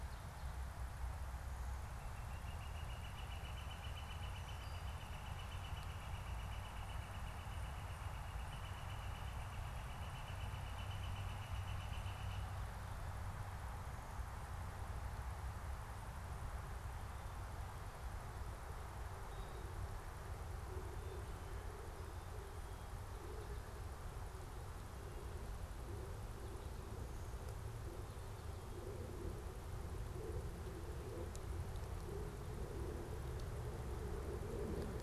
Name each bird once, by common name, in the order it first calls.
Northern Flicker